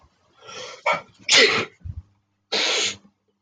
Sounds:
Sneeze